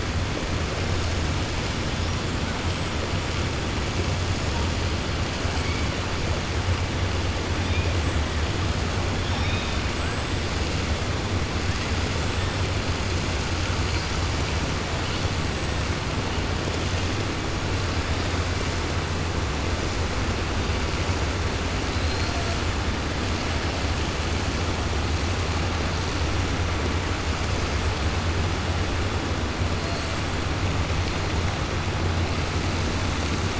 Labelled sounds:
9.2	9.8	killer whale, 1.7 to 5.5 kHz
21.9	22.5	killer whale, 3.8 to 5.1 kHz

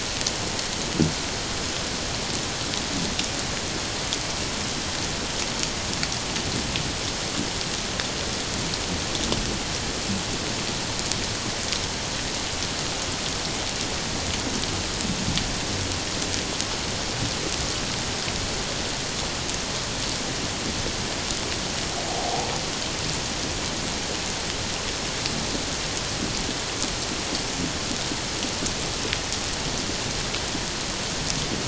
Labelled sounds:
22.1	22.5	humpback whale, 0.78 to 0.94 kHz

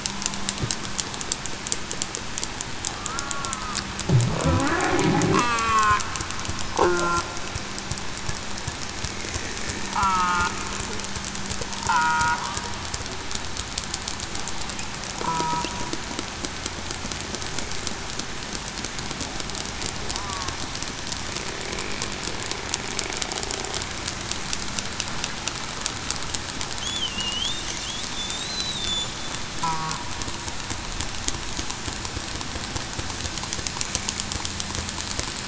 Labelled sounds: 2.9	3.8	killer whale, southern resident, 1.0 to 1.5 kHz
5.3	6.0	killer whale, southern resident, 0.42 to 2.7 kHz
6.8	7.2	killer whale, southern resident, 1.4 to 1.5 kHz
9.9	10.5	killer whale, southern resident, 0.87 to 1.4 kHz
11.8	12.3	killer whale, southern resident, 1.2 to 1.5 kHz
15.2	15.6	killer whale, southern resident, 0.89 to 1.4 kHz
27.1	27.5	killer whale, southern resident, 2.7 to 3.4 kHz
28.1	28.5	killer whale, southern resident, 3.4 to 4.0 kHz

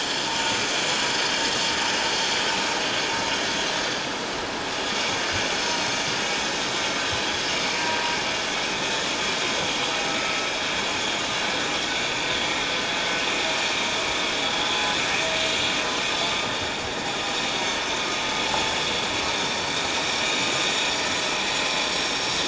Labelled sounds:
0.4	0.7	vessel noise, 6.4 to 6.5 kHz
2.5	2.8	vessel noise, 3.9 to 5.7 kHz
6.4	6.7	vessel noise, 3.7 to 4.0 kHz

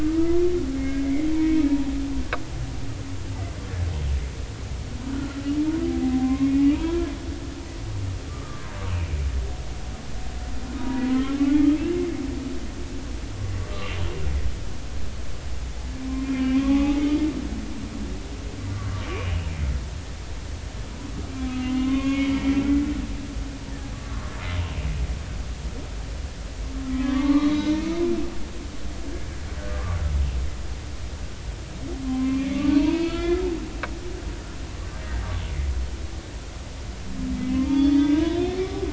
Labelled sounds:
0.0	0.4	humpback whale, 1.2 to 1.4 kHz
0.8	1.6	humpback whale, 2.1 to 2.4 kHz
5.1	5.4	humpback whale, 1.3 to 1.6 kHz
5.8	7.1	humpback whale, 0.80 to 2.3 kHz
8.3	8.6	humpback whale, 1.1 to 1.3 kHz
10.8	11.4	humpback whale, 0.90 to 1.4 kHz
16.2	17.2	humpback whale, 1.1 to 3.1 kHz
19.2	19.5	humpback whale, 2.5 to 3.0 kHz
21.5	22.5	humpback whale, 0.99 to 3.3 kHz
23.9	24.3	humpback whale, 1.0 to 1.4 kHz
26.8	28.0	humpback whale, 0.96 to 3.9 kHz
32.0	33.5	humpback whale, 0.86 to 4.6 kHz
35.0	35.3	humpback whale, 1.8 to 2.0 kHz
37.3	38.6	humpback whale, 0.93 to 4.7 kHz

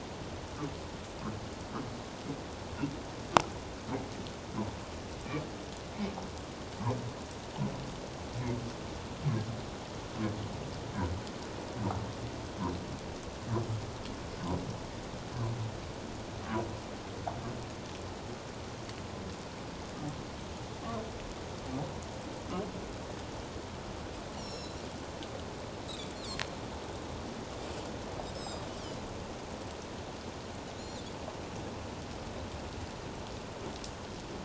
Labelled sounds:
24.4	24.8	Pacific white-sided dolphin, 3.9 to 8.0 kHz
26.1	26.4	Pacific white-sided dolphin, 3.2 to 4.3 kHz
28.3	28.6	Pacific white-sided dolphin, 4.8 to 7.9 kHz
30.8	31.0	Pacific white-sided dolphin, 6.7 to 7.3 kHz

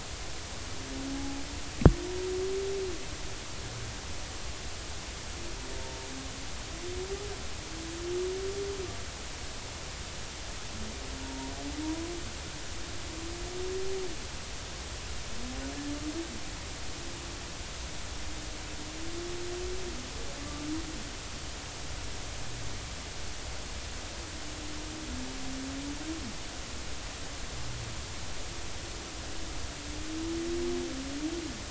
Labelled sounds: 1.1	1.4	humpback whale, 0.80 to 0.90 kHz
11.2	11.5	humpback whale, 0.90 to 0.99 kHz

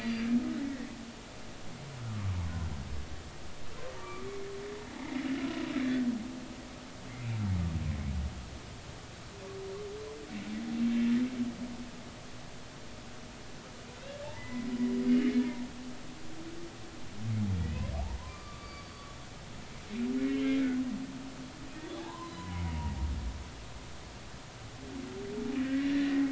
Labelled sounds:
0.0	0.3	humpback whale, 4.5 to 4.8 kHz
2.1	2.4	humpback whale, 0.99 to 1.2 kHz
4.0	4.3	humpback whale, 1.1 to 1.3 kHz
5.0	5.2	humpback whale, 2.0 to 2.3 kHz
14.3	14.7	humpback whale, 1.9 to 2.1 kHz
18.3	18.9	humpback whale, 1.1 to 4.7 kHz
20.2	20.6	humpback whale, 2.0 to 2.3 kHz
22.0	23.0	humpback whale, 0.80 to 4.2 kHz
25.6	26.2	humpback whale, 1.5 to 2.0 kHz

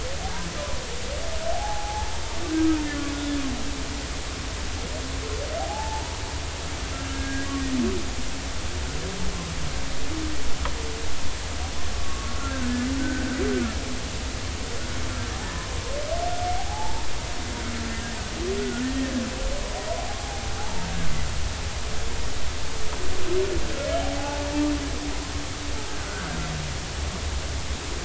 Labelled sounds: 1.5	2.1	humpback whale, 0.80 to 0.93 kHz
5.6	6.2	humpback whale, 0.80 to 0.99 kHz
7.1	7.5	humpback whale, 1.6 to 1.7 kHz
12.0	13.3	humpback whale, 1.1 to 1.7 kHz
15.4	15.7	humpback whale, 0.80 to 1.1 kHz
16.5	17.1	humpback whale, 0.80 to 0.96 kHz
18.6	18.8	humpback whale, 1.4 to 1.5 kHz
20.6	20.9	humpback whale, 0.80 to 0.99 kHz
24.2	24.5	humpback whale, 0.80 to 0.99 kHz
26.9	27.3	humpback whale, 1.3 to 1.6 kHz

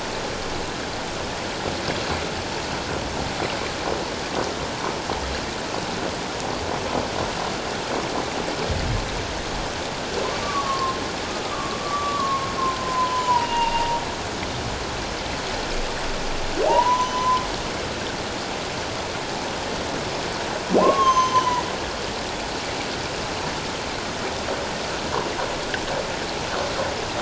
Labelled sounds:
10.4	11.0	humpback whale, 1.0 to 1.2 kHz
11.4	14.0	humpback whale, 0.84 to 2.9 kHz
16.7	17.4	humpback whale, 0.78 to 6.1 kHz
20.8	21.6	humpback whale, 0.78 to 6.5 kHz

